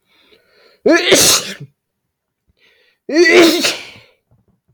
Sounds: Sneeze